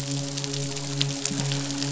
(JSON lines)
{"label": "biophony, midshipman", "recorder": "SoundTrap 500"}